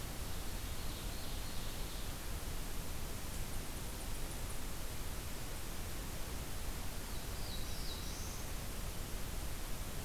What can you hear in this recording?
Ovenbird, Black-throated Blue Warbler